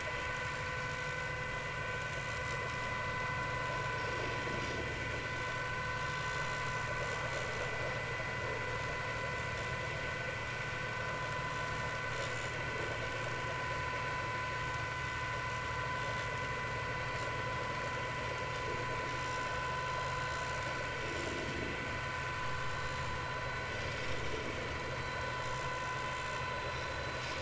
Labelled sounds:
12.2	12.5	vessel noise, 6.9 to 7.3 kHz
25.0	25.2	vessel noise, 4.0 to 4.1 kHz
26.1	26.4	vessel noise, 7.0 to 7.3 kHz

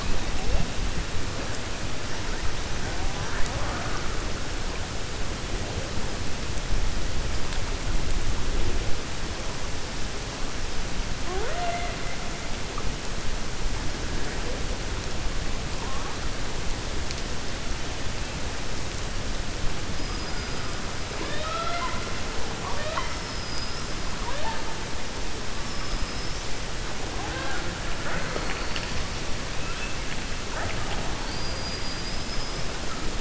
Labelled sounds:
21.1	22.1	killer whale, 0.39 to 4.8 kHz
31.2	32.7	killer whale, 4.4 to 5.5 kHz

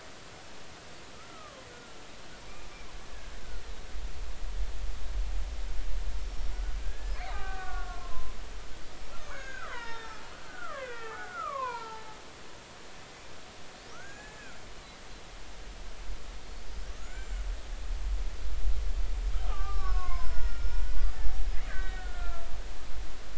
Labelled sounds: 1.1	2.0	killer whale, Bigg's (transient), 0.96 to 1.5 kHz
3.1	3.3	killer whale, Bigg's (transient), 1.6 to 1.8 kHz
6.2	8.3	killer whale, Bigg's (transient), 0.80 to 5.5 kHz
9.1	12.2	killer whale, Bigg's (transient), 0.80 to 6.8 kHz
13.9	14.6	killer whale, Bigg's (transient), 1.2 to 7.3 kHz
17.0	17.4	killer whale, Bigg's (transient), 1.2 to 7.4 kHz
19.5	22.4	killer whale, Bigg's (transient), 0.90 to 5.5 kHz

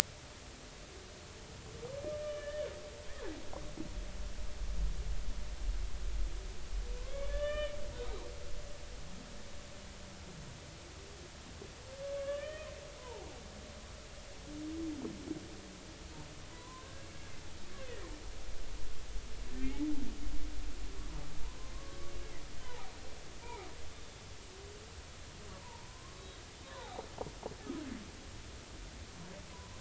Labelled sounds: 2.2	2.7	humpback whale, 1.7 to 3.2 kHz
7.0	7.8	humpback whale, 1.1 to 3.6 kHz
12.2	12.7	humpback whale, 1.1 to 3.1 kHz
13.0	13.3	humpback whale, 0.80 to 1.1 kHz
16.5	17.1	humpback whale, 0.93 to 1.7 kHz
17.8	18.0	humpback whale, 1.8 to 2.1 kHz
21.7	22.9	humpback whale, 0.80 to 1.2 kHz
23.4	23.7	humpback whale, 0.80 to 2.5 kHz
25.6	27.0	humpback whale, 0.80 to 3.9 kHz
29.5	29.8	humpback whale, 0.93 to 1.2 kHz

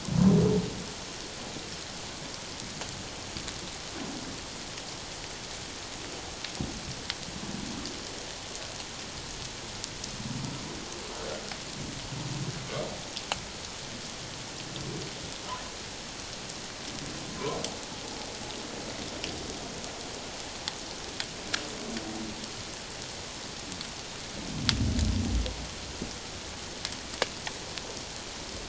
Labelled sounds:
17.3	17.6	humpback whale, 0.91 to 1.1 kHz

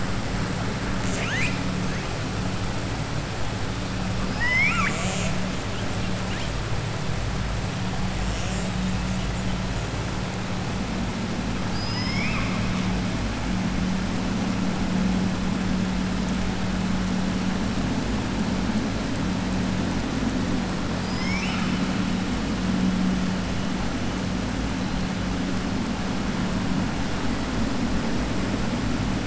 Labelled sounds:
0.9	1.6	killer whale, southern resident, 0.94 to 7.9 kHz
4.2	5.4	killer whale, southern resident, 0.64 to 7.8 kHz
11.6	12.8	killer whale, southern resident, 1.1 to 5.6 kHz
20.9	21.8	killer whale, southern resident, 1.2 to 7.0 kHz

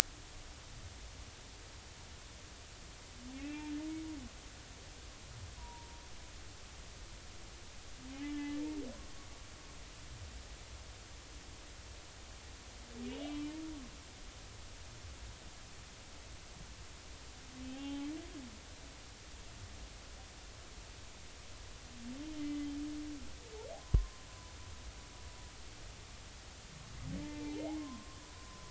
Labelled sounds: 3.3	3.7	humpback whale, 2.3 to 2.8 kHz
5.6	5.9	humpback whale, 0.90 to 1.0 kHz
8.2	8.6	humpback whale, 1.7 to 3.0 kHz
13.1	13.4	humpback whale, 2.8 to 3.0 kHz
17.7	18.1	humpback whale, 0.80 to 0.90 kHz
22.4	22.7	humpback whale, 2.0 to 2.1 kHz
23.8	24.2	humpback whale, 0.96 to 1.1 kHz
27.2	28.6	humpback whale, 0.80 to 1.2 kHz

